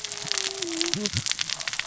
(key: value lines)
label: biophony, cascading saw
recorder: SoundTrap 600 or HydroMoth